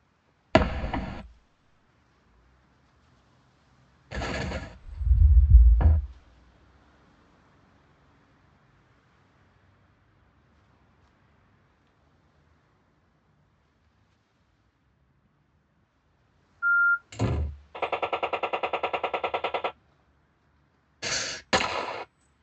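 At 0.53 seconds, you can hear fireworks. After that, at 4.1 seconds, an explosion is heard. Next, at 4.82 seconds, a door opens. Later, at 16.61 seconds, there is the sound of a telephone. Afterwards, at 17.1 seconds, slamming is audible. After that, at 17.74 seconds, gunfire is heard. Next, at 21.02 seconds, breathing is audible. Finally, at 21.5 seconds, you can hear gunfire.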